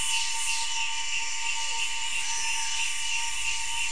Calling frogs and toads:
none
Brazil, ~6pm

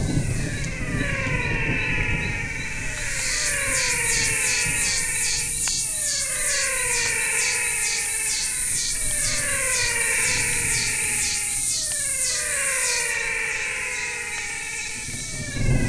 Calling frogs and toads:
Adenomera diptyx, menwig frog (Physalaemus albonotatus)
Brazil, 6pm

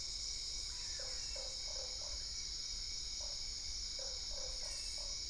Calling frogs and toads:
brown-spotted dwarf frog (Physalaemus marmoratus), Usina tree frog (Boana lundii)
Brazil, 8:30pm

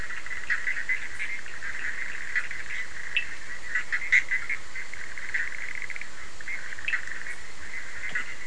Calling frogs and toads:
Bischoff's tree frog (Boana bischoffi), Cochran's lime tree frog (Sphaenorhynchus surdus)
Brazil, 11:30pm

